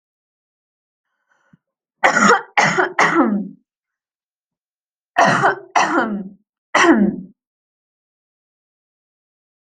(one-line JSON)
{"expert_labels": [{"quality": "good", "cough_type": "wet", "dyspnea": false, "wheezing": false, "stridor": false, "choking": false, "congestion": false, "nothing": true, "diagnosis": "lower respiratory tract infection", "severity": "mild"}], "age": 20, "gender": "female", "respiratory_condition": false, "fever_muscle_pain": false, "status": "healthy"}